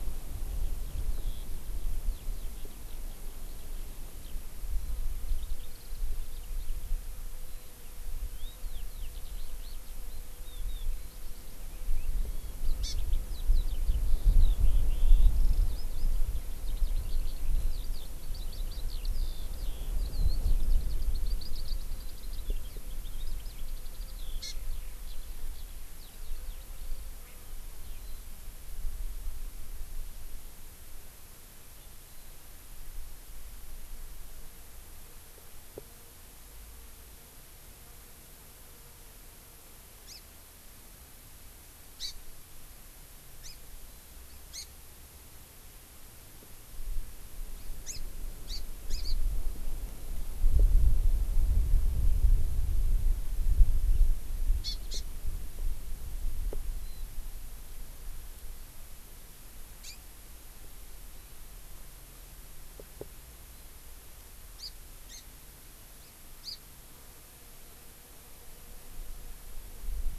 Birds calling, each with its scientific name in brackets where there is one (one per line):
Eurasian Skylark (Alauda arvensis)
Hawaii Amakihi (Chlorodrepanis virens)
Warbling White-eye (Zosterops japonicus)